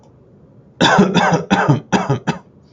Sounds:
Cough